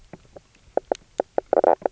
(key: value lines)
label: biophony, knock croak
recorder: SoundTrap 300